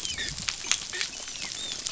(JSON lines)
{"label": "biophony, dolphin", "recorder": "SoundTrap 500"}